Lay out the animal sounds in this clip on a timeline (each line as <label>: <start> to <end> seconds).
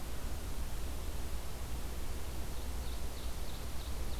Ovenbird (Seiurus aurocapilla): 1.8 to 4.2 seconds